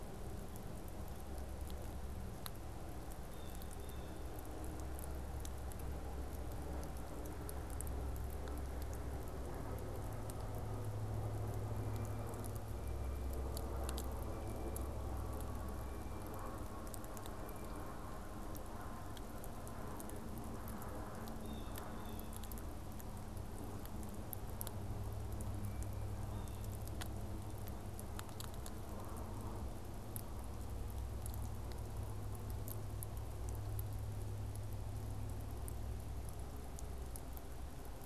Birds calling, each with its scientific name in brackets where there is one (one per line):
Blue Jay (Cyanocitta cristata)